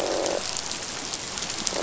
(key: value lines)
label: biophony, croak
recorder: SoundTrap 500